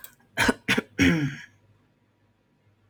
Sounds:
Throat clearing